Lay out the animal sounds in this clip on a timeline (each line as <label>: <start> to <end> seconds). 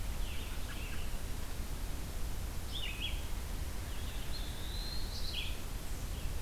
Red-eyed Vireo (Vireo olivaceus): 0.1 to 6.4 seconds
American Robin (Turdus migratorius): 0.2 to 1.1 seconds
Eastern Wood-Pewee (Contopus virens): 4.1 to 5.1 seconds